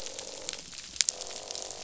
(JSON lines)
{"label": "biophony, croak", "recorder": "SoundTrap 500"}